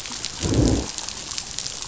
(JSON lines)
{"label": "biophony, growl", "recorder": "SoundTrap 500"}